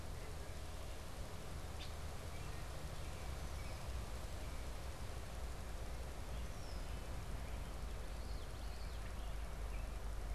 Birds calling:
Red-winged Blackbird (Agelaius phoeniceus)
Common Yellowthroat (Geothlypis trichas)
American Robin (Turdus migratorius)

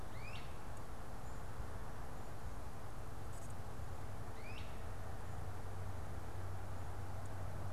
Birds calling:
Great Crested Flycatcher (Myiarchus crinitus)

